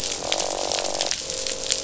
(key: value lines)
label: biophony, croak
recorder: SoundTrap 500